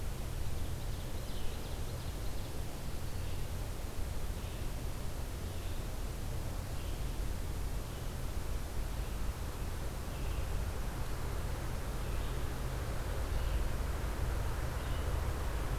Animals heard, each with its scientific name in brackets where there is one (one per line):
Ovenbird (Seiurus aurocapilla)
Red-eyed Vireo (Vireo olivaceus)